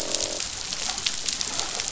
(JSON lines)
{"label": "biophony, croak", "recorder": "SoundTrap 500"}